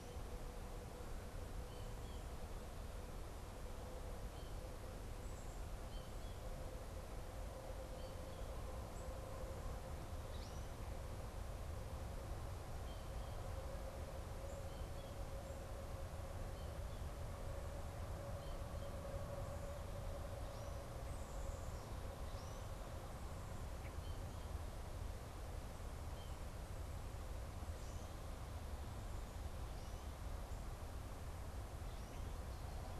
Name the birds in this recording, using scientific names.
Spinus tristis